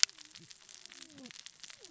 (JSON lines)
{"label": "biophony, cascading saw", "recorder": "SoundTrap 600 or HydroMoth"}